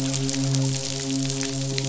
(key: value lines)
label: biophony, midshipman
recorder: SoundTrap 500